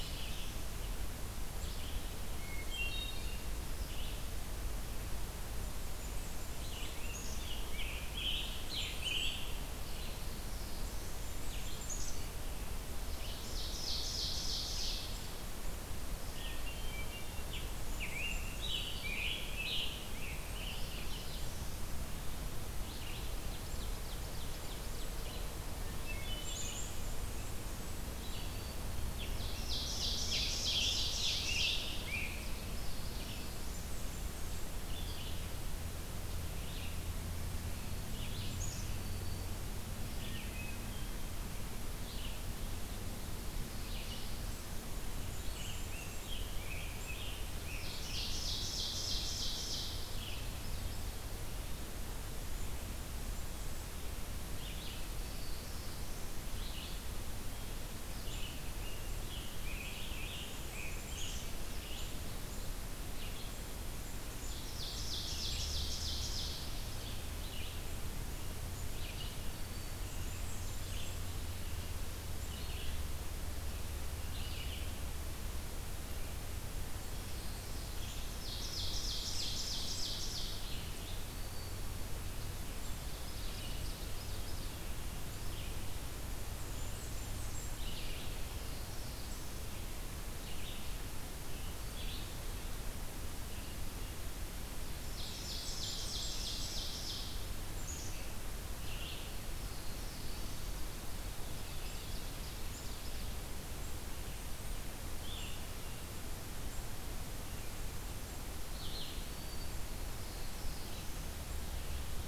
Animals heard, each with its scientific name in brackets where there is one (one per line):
Blackburnian Warbler (Setophaga fusca)
Ovenbird (Seiurus aurocapilla)
Scarlet Tanager (Piranga olivacea)
Red-eyed Vireo (Vireo olivaceus)
Black-throated Green Warbler (Setophaga virens)
Black-throated Blue Warbler (Setophaga caerulescens)
Black-capped Chickadee (Poecile atricapillus)
Hermit Thrush (Catharus guttatus)